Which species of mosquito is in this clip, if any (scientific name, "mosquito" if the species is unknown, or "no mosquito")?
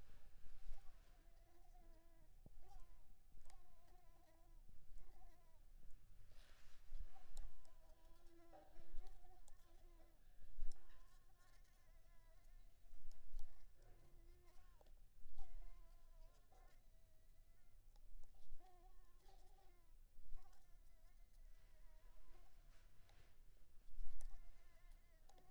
Anopheles coustani